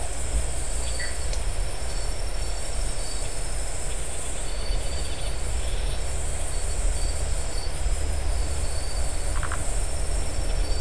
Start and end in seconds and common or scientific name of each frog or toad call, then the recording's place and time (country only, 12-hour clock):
0.9	1.2	Dendropsophus elegans
9.3	9.7	Phyllomedusa distincta
Brazil, 1:00am